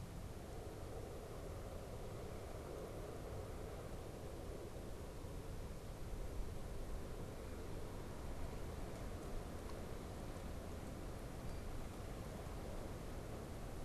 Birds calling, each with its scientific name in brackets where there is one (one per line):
Blue Jay (Cyanocitta cristata)